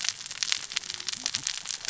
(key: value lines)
label: biophony, cascading saw
recorder: SoundTrap 600 or HydroMoth